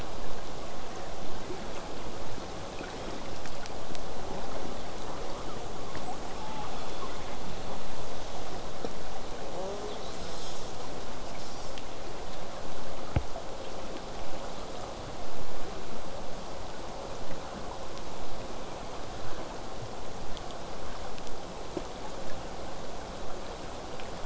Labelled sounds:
3.0	3.4	killer whale, southern resident, J pod, 1.7 to 3.9 kHz
4.3	4.8	killer whale, southern resident, J pod, buzz, 0.17 to 2.0 kHz
5.2	7.7	killer whale, southern resident, J pod, 0.35 to 8.0 kHz
9.5	11.8	killer whale, southern resident, J pod, call S10, 0.16 to 8.0 kHz

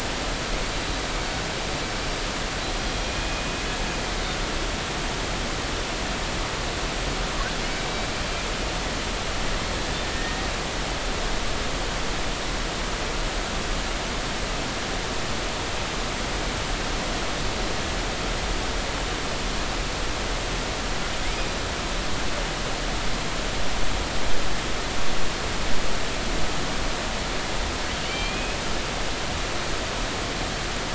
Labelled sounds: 1.9	2.1	killer whale, Bigg's (transient), 5.3 to 5.5 kHz
3.1	3.4	killer whale, Bigg's (transient), 2.4 to 2.5 kHz
7.7	8.1	killer whale, Bigg's (transient), 2.2 to 2.4 kHz
10.1	10.5	killer whale, Bigg's (transient), 1.8 to 1.9 kHz
28.0	28.6	killer whale, Bigg's (transient), 2.1 to 3.2 kHz

